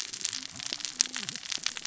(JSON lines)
{"label": "biophony, cascading saw", "recorder": "SoundTrap 600 or HydroMoth"}